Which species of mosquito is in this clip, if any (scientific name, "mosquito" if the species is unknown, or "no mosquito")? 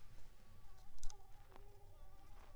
Anopheles squamosus